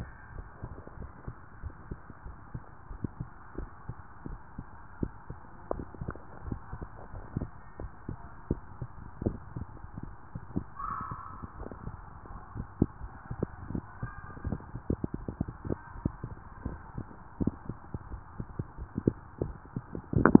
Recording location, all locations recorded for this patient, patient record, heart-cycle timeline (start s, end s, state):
tricuspid valve (TV)
aortic valve (AV)+pulmonary valve (PV)+tricuspid valve (TV)
#Age: nan
#Sex: Female
#Height: nan
#Weight: nan
#Pregnancy status: True
#Murmur: Absent
#Murmur locations: nan
#Most audible location: nan
#Systolic murmur timing: nan
#Systolic murmur shape: nan
#Systolic murmur grading: nan
#Systolic murmur pitch: nan
#Systolic murmur quality: nan
#Diastolic murmur timing: nan
#Diastolic murmur shape: nan
#Diastolic murmur grading: nan
#Diastolic murmur pitch: nan
#Diastolic murmur quality: nan
#Outcome: Normal
#Campaign: 2015 screening campaign
0.00	0.08	unannotated
0.08	0.34	diastole
0.34	0.48	S1
0.48	0.60	systole
0.60	0.70	S2
0.70	1.00	diastole
1.00	1.10	S1
1.10	1.24	systole
1.24	1.34	S2
1.34	1.62	diastole
1.62	1.76	S1
1.76	1.88	systole
1.88	1.98	S2
1.98	2.24	diastole
2.24	2.36	S1
2.36	2.54	systole
2.54	2.62	S2
2.62	2.90	diastole
2.90	3.00	S1
3.00	3.16	systole
3.16	3.28	S2
3.28	3.58	diastole
3.58	3.70	S1
3.70	3.88	systole
3.88	3.96	S2
3.96	4.26	diastole
4.26	4.40	S1
4.40	4.58	systole
4.58	4.66	S2
4.66	4.98	diastole
4.98	5.12	S1
5.12	5.26	systole
5.26	5.38	S2
5.38	5.70	diastole
5.70	5.88	S1
5.88	6.00	systole
6.00	6.16	S2
6.16	6.46	diastole
6.46	6.60	S1
6.60	6.70	systole
6.70	6.80	S2
6.80	7.12	diastole
7.12	7.24	S1
7.24	7.36	systole
7.36	7.50	S2
7.50	7.80	diastole
7.80	7.92	S1
7.92	8.08	systole
8.08	8.18	S2
8.18	8.46	diastole
8.46	8.62	S1
8.62	8.78	systole
8.78	8.90	S2
8.90	9.22	diastole
9.22	9.38	S1
9.38	9.54	systole
9.54	9.68	S2
9.68	10.04	diastole
10.04	10.16	S1
10.16	10.34	systole
10.34	10.44	S2
10.44	10.82	diastole
10.82	10.94	S1
10.94	11.08	systole
11.08	11.18	S2
11.18	11.56	diastole
11.56	11.68	S1
11.68	11.84	systole
11.84	11.98	S2
11.98	12.30	diastole
12.30	20.40	unannotated